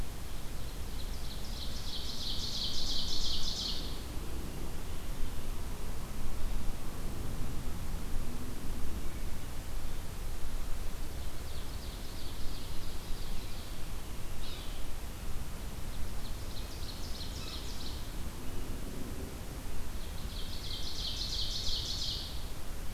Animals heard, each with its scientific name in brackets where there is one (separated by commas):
Ovenbird (Seiurus aurocapilla), Yellow-bellied Sapsucker (Sphyrapicus varius)